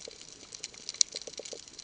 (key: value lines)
label: ambient
recorder: HydroMoth